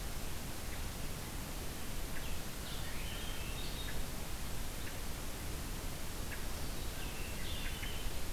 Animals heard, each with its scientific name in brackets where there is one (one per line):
Hermit Thrush (Catharus guttatus)